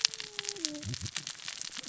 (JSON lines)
{"label": "biophony, cascading saw", "recorder": "SoundTrap 600 or HydroMoth"}